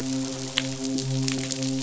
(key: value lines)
label: biophony, midshipman
recorder: SoundTrap 500